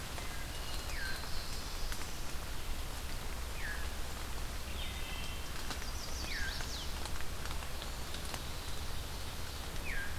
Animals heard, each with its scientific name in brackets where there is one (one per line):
Black-throated Blue Warbler (Setophaga caerulescens)
Veery (Catharus fuscescens)
Wood Thrush (Hylocichla mustelina)
Chestnut-sided Warbler (Setophaga pensylvanica)